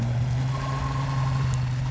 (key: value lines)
label: anthrophony, boat engine
recorder: SoundTrap 500